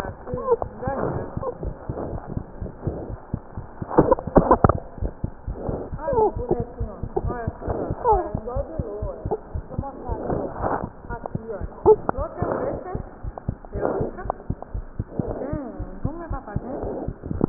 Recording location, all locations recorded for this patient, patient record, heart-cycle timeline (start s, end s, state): tricuspid valve (TV)
aortic valve (AV)+pulmonary valve (PV)+tricuspid valve (TV)+mitral valve (MV)
#Age: Child
#Sex: Male
#Height: 90.0 cm
#Weight: 14.6 kg
#Pregnancy status: False
#Murmur: Unknown
#Murmur locations: nan
#Most audible location: nan
#Systolic murmur timing: nan
#Systolic murmur shape: nan
#Systolic murmur grading: nan
#Systolic murmur pitch: nan
#Systolic murmur quality: nan
#Diastolic murmur timing: nan
#Diastolic murmur shape: nan
#Diastolic murmur grading: nan
#Diastolic murmur pitch: nan
#Diastolic murmur quality: nan
#Outcome: Abnormal
#Campaign: 2015 screening campaign
0.00	6.32	unannotated
6.32	6.49	S1
6.49	6.57	systole
6.57	6.68	S2
6.68	6.79	diastole
6.79	6.88	S1
6.88	7.01	systole
7.01	7.10	S2
7.10	7.22	diastole
7.22	7.32	S1
7.32	7.45	systole
7.45	7.52	S2
7.52	7.66	diastole
7.66	7.75	S1
7.75	7.88	systole
7.88	7.94	S2
7.94	8.09	diastole
8.09	8.19	S1
8.19	8.30	systole
8.30	8.39	S2
8.39	8.54	diastole
8.54	8.64	S1
8.64	8.74	systole
8.74	8.85	S2
8.85	9.00	diastole
9.00	9.10	S1
9.10	9.21	systole
9.21	9.32	S2
9.32	9.51	diastole
9.51	9.62	S1
9.62	9.75	systole
9.75	9.85	S2
9.85	10.06	diastole
10.06	10.16	S1
10.16	10.28	systole
10.28	10.39	S2
10.39	10.56	diastole
10.56	10.69	S1
10.69	10.80	systole
10.80	10.88	S2
10.88	11.07	diastole
11.07	17.49	unannotated